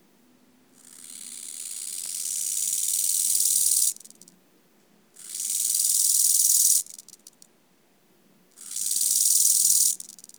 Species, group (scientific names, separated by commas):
Chorthippus eisentrauti, Orthoptera